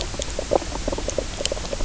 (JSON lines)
{"label": "biophony, knock croak", "recorder": "SoundTrap 300"}